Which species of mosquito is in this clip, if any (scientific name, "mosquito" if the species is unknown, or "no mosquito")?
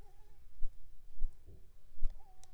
Anopheles squamosus